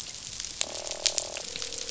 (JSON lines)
{"label": "biophony, croak", "recorder": "SoundTrap 500"}